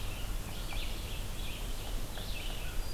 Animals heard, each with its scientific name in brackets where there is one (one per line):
American Crow (Corvus brachyrhynchos)
Red-eyed Vireo (Vireo olivaceus)